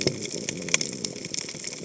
{"label": "biophony", "recorder": "HydroMoth"}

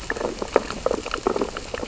{"label": "biophony, sea urchins (Echinidae)", "recorder": "SoundTrap 600 or HydroMoth"}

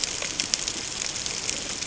{"label": "ambient", "recorder": "HydroMoth"}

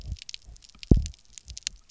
{"label": "biophony, double pulse", "recorder": "SoundTrap 300"}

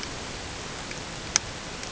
{"label": "ambient", "recorder": "HydroMoth"}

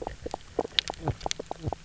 {"label": "biophony, knock croak", "recorder": "SoundTrap 300"}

